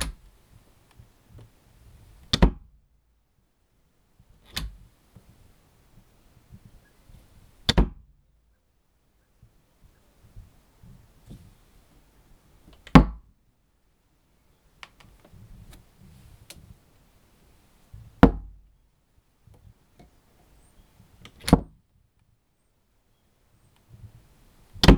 Does the sound happen multiple times?
yes